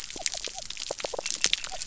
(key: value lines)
label: biophony
recorder: SoundTrap 300